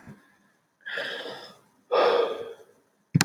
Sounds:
Sigh